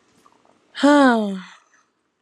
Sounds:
Sigh